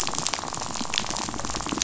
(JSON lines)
{"label": "biophony, rattle", "recorder": "SoundTrap 500"}